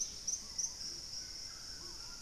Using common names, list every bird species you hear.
Purple-throated Fruitcrow, White-throated Toucan